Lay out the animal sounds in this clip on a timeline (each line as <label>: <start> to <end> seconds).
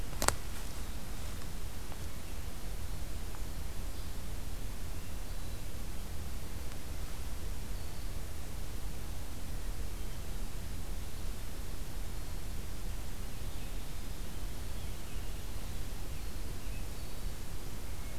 American Robin (Turdus migratorius): 13.0 to 16.9 seconds